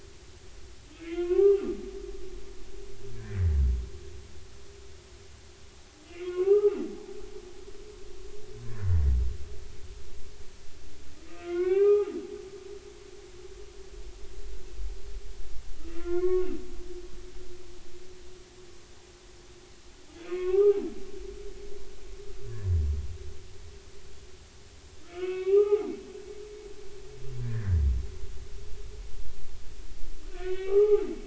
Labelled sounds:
1.0	1.7	humpback whale, 0.99 to 3.2 kHz
3.2	3.6	humpback whale, 1.5 to 2.0 kHz
6.0	6.8	humpback whale, 0.80 to 2.3 kHz
7.3	7.6	humpback whale, 1.4 to 1.7 kHz
11.3	12.1	humpback whale, 0.80 to 2.8 kHz
15.9	16.5	humpback whale, 0.99 to 2.3 kHz
20.2	20.8	humpback whale, 0.80 to 2.8 kHz
25.0	25.9	humpback whale, 0.80 to 3.5 kHz
27.4	27.8	humpback whale, 1.5 to 2.0 kHz
30.3	31.0	humpback whale, 0.80 to 3.1 kHz

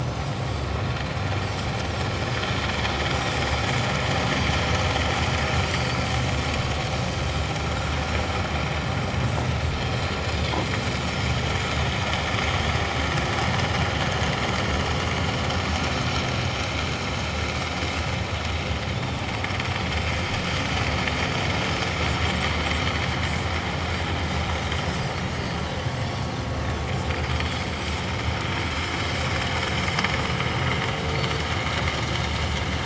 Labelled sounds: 2.1	2.4	Pacific white-sided dolphin, 4.8 to 5.3 kHz
5.7	6.0	Pacific white-sided dolphin, 4.3 to 4.7 kHz
9.8	10.6	Pacific white-sided dolphin, 3.1 to 7.0 kHz
11.0	11.3	Pacific white-sided dolphin, 5.2 to 5.5 kHz
18.9	19.2	Pacific white-sided dolphin, 3.4 to 3.7 kHz
25.2	25.6	Pacific white-sided dolphin, 4.6 to 6.6 kHz
26.0	26.3	Pacific white-sided dolphin, 4.3 to 4.7 kHz
27.4	27.6	Pacific white-sided dolphin, 3.2 to 3.5 kHz
31.1	31.4	Pacific white-sided dolphin, 4.2 to 4.6 kHz

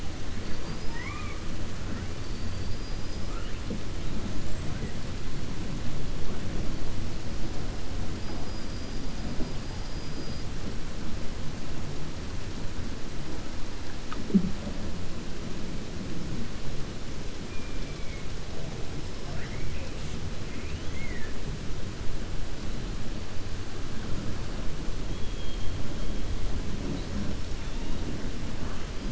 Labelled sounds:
2.2	3.2	killer whale, 4.3 to 5.1 kHz
17.4	18.2	killer whale, 2.2 to 2.5 kHz
20.4	21.3	killer whale, 1.7 to 3.4 kHz

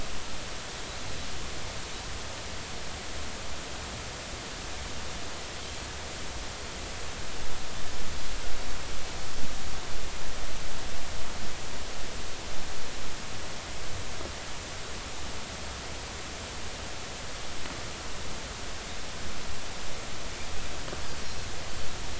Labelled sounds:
21.2	21.5	Pacific white-sided dolphin, 4.1 to 4.3 kHz

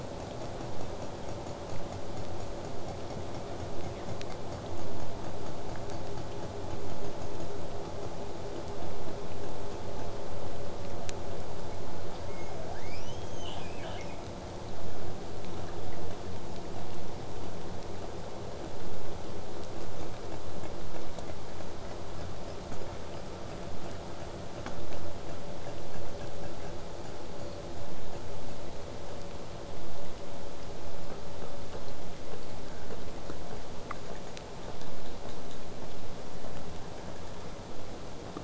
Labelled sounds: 12.3	14.2	killer whale, southern resident, 1.1 to 8.0 kHz

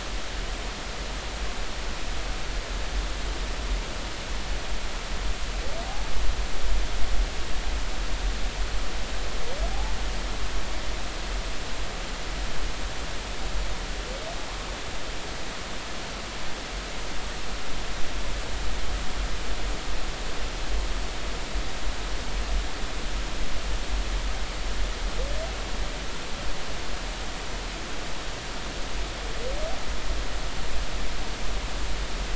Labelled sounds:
5.8	6.1	humpback whale, 0.80 to 0.93 kHz

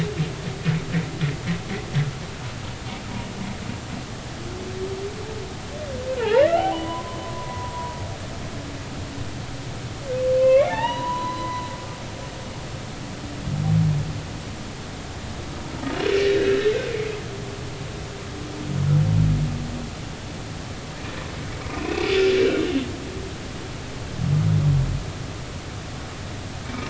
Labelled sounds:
6.2	7.9	humpback whale, 0.80 to 3.2 kHz
10.4	12.1	humpback whale, 0.80 to 4.1 kHz
21.7	22.0	humpback whale, 2.2 to 2.7 kHz
22.4	22.6	humpback whale, 1.4 to 1.7 kHz
26.6	26.8	humpback whale, 2.2 to 2.4 kHz

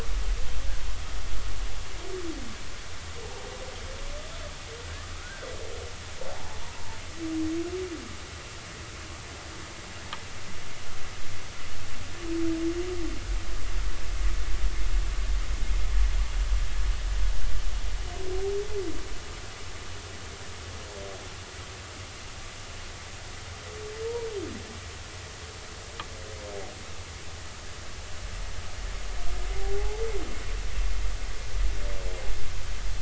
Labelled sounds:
5.2	5.5	humpback whale, 1.2 to 1.6 kHz
6.4	7.0	humpback whale, 0.80 to 1.0 kHz
29.5	30.0	humpback whale, 0.80 to 0.96 kHz

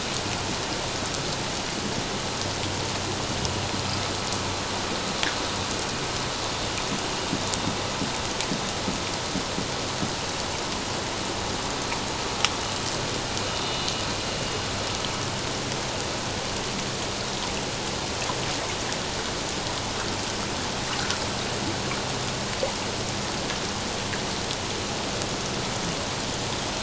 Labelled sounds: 13.5	13.8	vessel noise, 3.6 to 3.7 kHz

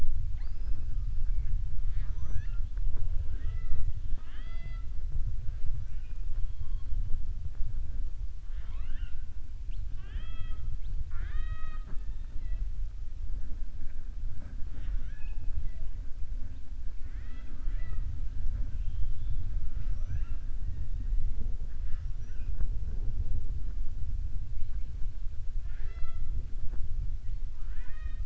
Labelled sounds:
8.4	9.2	killer whale, southern resident, 0.69 to 4.2 kHz
16.9	18.1	killer whale, southern resident, 0.34 to 4.5 kHz
27.5	28.2	killer whale, southern resident, 0.64 to 4.3 kHz

